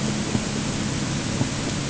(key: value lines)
label: anthrophony, boat engine
recorder: HydroMoth